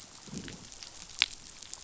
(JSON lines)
{"label": "biophony, growl", "recorder": "SoundTrap 500"}